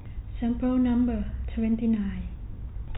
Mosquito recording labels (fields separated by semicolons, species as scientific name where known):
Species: no mosquito; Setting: cup